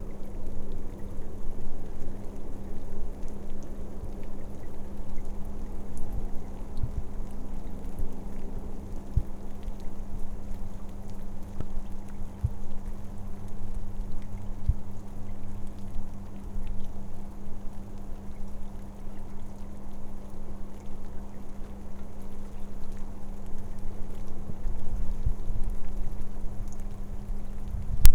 Is that the sound of a horn?
no